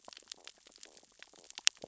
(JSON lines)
{"label": "biophony, stridulation", "recorder": "SoundTrap 600 or HydroMoth"}